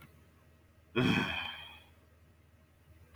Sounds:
Sigh